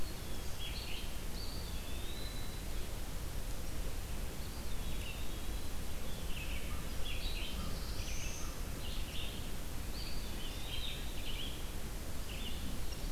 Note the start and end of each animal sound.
0.0s-13.1s: Red-eyed Vireo (Vireo olivaceus)
1.1s-2.8s: Eastern Wood-Pewee (Contopus virens)
1.7s-2.6s: Wood Thrush (Hylocichla mustelina)
4.2s-5.8s: Eastern Wood-Pewee (Contopus virens)
6.6s-8.6s: American Crow (Corvus brachyrhynchos)
6.9s-8.6s: Black-throated Blue Warbler (Setophaga caerulescens)
9.7s-11.1s: Eastern Wood-Pewee (Contopus virens)

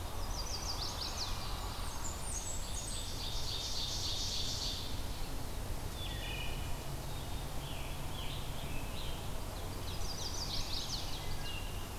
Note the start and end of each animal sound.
0.0s-1.3s: Chestnut-sided Warbler (Setophaga pensylvanica)
0.6s-5.0s: Ovenbird (Seiurus aurocapilla)
1.6s-3.1s: Blackburnian Warbler (Setophaga fusca)
5.8s-6.8s: Wood Thrush (Hylocichla mustelina)
7.2s-9.2s: Scarlet Tanager (Piranga olivacea)
9.4s-11.6s: Ovenbird (Seiurus aurocapilla)
9.7s-11.3s: Chestnut-sided Warbler (Setophaga pensylvanica)
11.2s-12.0s: Wood Thrush (Hylocichla mustelina)

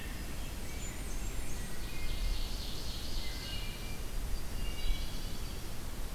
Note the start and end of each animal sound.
0.1s-1.9s: Rose-breasted Grosbeak (Pheucticus ludovicianus)
0.3s-2.1s: Blackburnian Warbler (Setophaga fusca)
1.4s-2.4s: Wood Thrush (Hylocichla mustelina)
1.5s-3.8s: Ovenbird (Seiurus aurocapilla)
3.1s-4.2s: Wood Thrush (Hylocichla mustelina)
3.8s-5.8s: Yellow-rumped Warbler (Setophaga coronata)
4.5s-5.3s: Wood Thrush (Hylocichla mustelina)

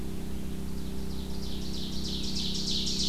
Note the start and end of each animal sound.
0.4s-3.1s: Ovenbird (Seiurus aurocapilla)

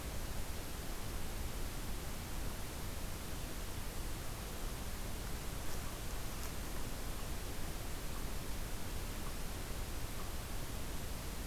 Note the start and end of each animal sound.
4.9s-11.5s: Eastern Chipmunk (Tamias striatus)

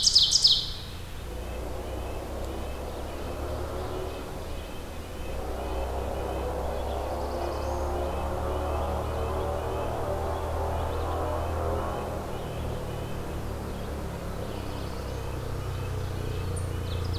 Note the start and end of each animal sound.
0.0s-1.0s: Ovenbird (Seiurus aurocapilla)
0.6s-17.2s: Red-breasted Nuthatch (Sitta canadensis)
2.5s-4.4s: Ovenbird (Seiurus aurocapilla)
6.6s-7.9s: Black-throated Blue Warbler (Setophaga caerulescens)
14.2s-15.4s: Black-throated Blue Warbler (Setophaga caerulescens)

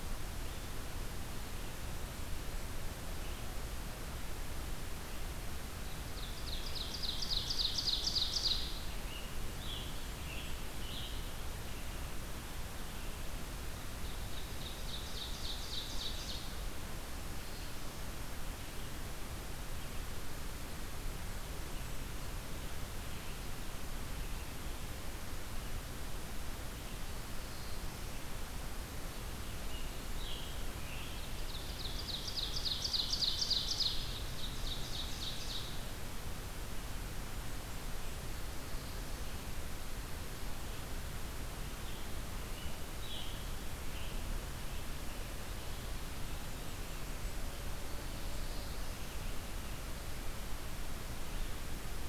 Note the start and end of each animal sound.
0.0s-41.1s: Red-eyed Vireo (Vireo olivaceus)
6.0s-8.7s: Ovenbird (Seiurus aurocapilla)
8.8s-11.3s: Scarlet Tanager (Piranga olivacea)
13.6s-16.5s: Ovenbird (Seiurus aurocapilla)
26.7s-28.2s: Black-throated Blue Warbler (Setophaga caerulescens)
29.3s-31.4s: Scarlet Tanager (Piranga olivacea)
31.4s-36.0s: Ovenbird (Seiurus aurocapilla)
36.6s-38.3s: Blackburnian Warbler (Setophaga fusca)
41.7s-45.2s: Scarlet Tanager (Piranga olivacea)
46.3s-47.8s: Blackburnian Warbler (Setophaga fusca)
47.3s-49.3s: Black-throated Blue Warbler (Setophaga caerulescens)

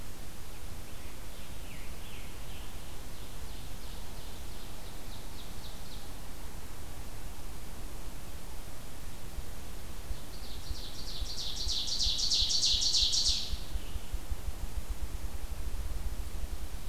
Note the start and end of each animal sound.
0.5s-3.1s: Scarlet Tanager (Piranga olivacea)
2.8s-6.2s: Ovenbird (Seiurus aurocapilla)
9.6s-16.9s: Ruffed Grouse (Bonasa umbellus)
10.0s-13.9s: Ovenbird (Seiurus aurocapilla)

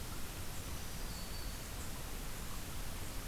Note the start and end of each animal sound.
0.0s-1.9s: Black-throated Green Warbler (Setophaga virens)

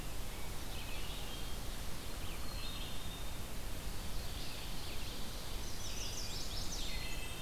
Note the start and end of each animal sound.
0.0s-7.4s: Red-eyed Vireo (Vireo olivaceus)
0.7s-1.6s: Wood Thrush (Hylocichla mustelina)
2.2s-3.5s: Black-capped Chickadee (Poecile atricapillus)
3.9s-6.1s: Ovenbird (Seiurus aurocapilla)
5.4s-7.0s: Chestnut-sided Warbler (Setophaga pensylvanica)
5.7s-7.4s: Blackburnian Warbler (Setophaga fusca)
6.7s-7.4s: Wood Thrush (Hylocichla mustelina)

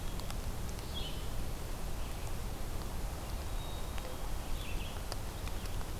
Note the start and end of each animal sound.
0.0s-6.0s: Red-eyed Vireo (Vireo olivaceus)
3.3s-4.5s: Black-capped Chickadee (Poecile atricapillus)

